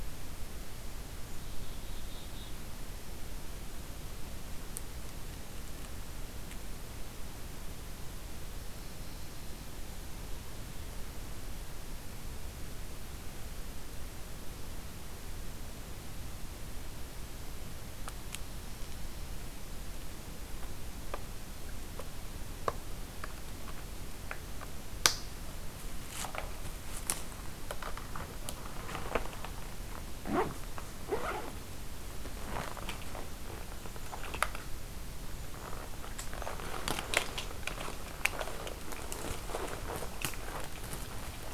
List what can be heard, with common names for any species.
Black-capped Chickadee